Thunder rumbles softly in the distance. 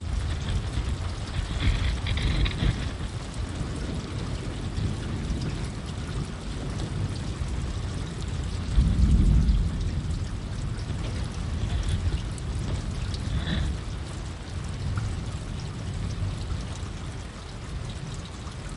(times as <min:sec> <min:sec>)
0:08.6 0:10.3